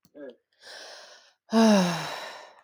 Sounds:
Sigh